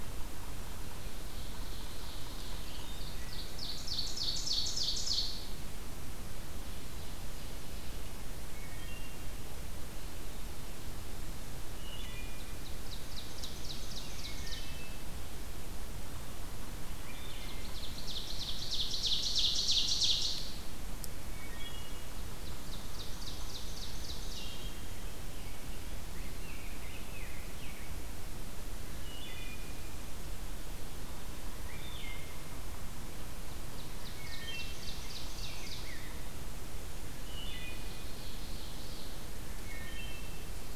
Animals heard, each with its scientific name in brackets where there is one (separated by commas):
Ovenbird (Seiurus aurocapilla), Wood Thrush (Hylocichla mustelina), Rose-breasted Grosbeak (Pheucticus ludovicianus)